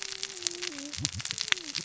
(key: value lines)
label: biophony, cascading saw
recorder: SoundTrap 600 or HydroMoth